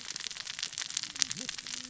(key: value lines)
label: biophony, cascading saw
recorder: SoundTrap 600 or HydroMoth